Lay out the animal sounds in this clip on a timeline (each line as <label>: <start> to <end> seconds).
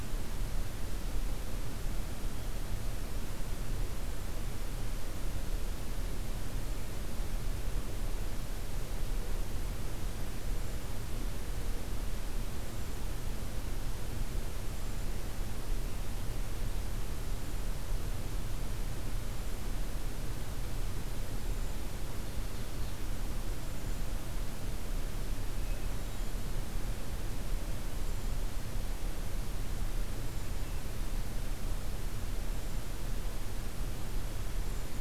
Hermit Thrush (Catharus guttatus): 10.4 to 11.0 seconds
Hermit Thrush (Catharus guttatus): 12.5 to 13.0 seconds
Hermit Thrush (Catharus guttatus): 14.7 to 15.1 seconds
Hermit Thrush (Catharus guttatus): 17.1 to 17.6 seconds
Hermit Thrush (Catharus guttatus): 19.2 to 19.7 seconds
Hermit Thrush (Catharus guttatus): 21.3 to 21.9 seconds
Ovenbird (Seiurus aurocapilla): 22.0 to 23.1 seconds
Hermit Thrush (Catharus guttatus): 23.5 to 24.1 seconds
Hermit Thrush (Catharus guttatus): 25.5 to 26.5 seconds
Hermit Thrush (Catharus guttatus): 27.9 to 28.4 seconds
Hermit Thrush (Catharus guttatus): 30.0 to 30.8 seconds
Hermit Thrush (Catharus guttatus): 32.2 to 32.9 seconds
Hermit Thrush (Catharus guttatus): 34.4 to 35.0 seconds